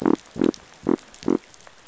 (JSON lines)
{"label": "biophony", "recorder": "SoundTrap 500"}